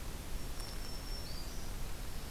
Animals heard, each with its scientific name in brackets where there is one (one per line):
Black-throated Green Warbler (Setophaga virens)